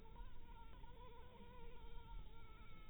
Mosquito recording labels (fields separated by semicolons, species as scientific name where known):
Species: Anopheles harrisoni; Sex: female; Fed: blood-fed; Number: one; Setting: cup